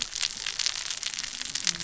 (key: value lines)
label: biophony, cascading saw
recorder: SoundTrap 600 or HydroMoth